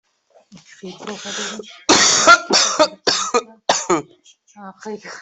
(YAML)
expert_labels:
- quality: good
  cough_type: dry
  dyspnea: false
  wheezing: false
  stridor: false
  choking: false
  congestion: false
  nothing: true
  diagnosis: upper respiratory tract infection
  severity: mild
age: 20
gender: female
respiratory_condition: false
fever_muscle_pain: true
status: COVID-19